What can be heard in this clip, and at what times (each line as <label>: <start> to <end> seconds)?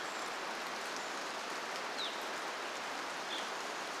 Brown Creeper call: 0 to 2 seconds
rain: 0 to 4 seconds
Evening Grosbeak call: 2 to 4 seconds